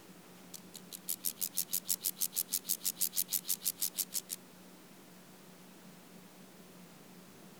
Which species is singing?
Chorthippus vagans